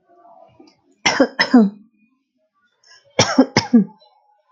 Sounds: Cough